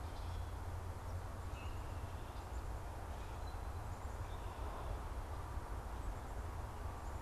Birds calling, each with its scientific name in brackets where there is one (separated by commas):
Common Grackle (Quiscalus quiscula)